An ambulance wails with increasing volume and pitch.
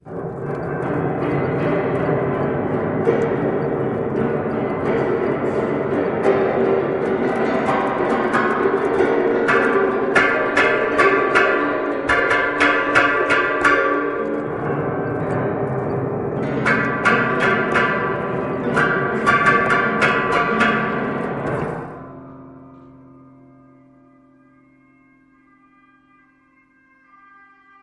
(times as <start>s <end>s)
22.3s 27.8s